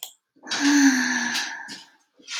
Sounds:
Sigh